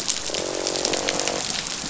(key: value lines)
label: biophony, croak
recorder: SoundTrap 500